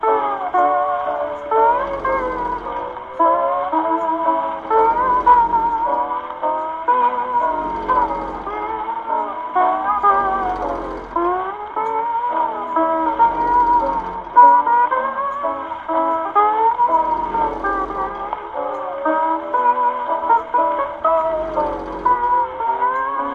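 0.0s A rhythmic, loud song is playing on the radio. 4.8s
0.0s A car produces a deep, grinding sound. 13.3s
4.8s A loud and melodic song is playing. 7.5s
7.5s A song is playing on the radio in the background. 9.5s
9.5s A melodic song plays in the background. 13.3s
13.3s A deep vehicle sound. 17.4s
13.3s A loud song is playing in a car. 17.4s
17.4s A car is making a muffled noise. 21.5s
17.4s A cheerful song plays in the car. 21.5s
21.5s A loud song is playing on the radio. 23.3s
21.5s A vehicle is making a deep muffled sound. 23.3s

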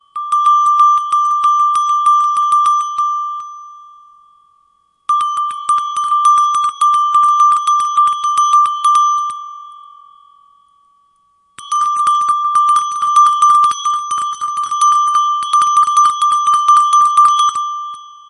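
0.0s A bell is ringing loudly and repeatedly indoors. 3.7s
5.1s A bell is ringing loudly and repeatedly indoors. 9.7s
11.6s A bell is ringing loudly and repeatedly indoors. 18.1s

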